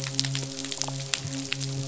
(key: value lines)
label: biophony, midshipman
recorder: SoundTrap 500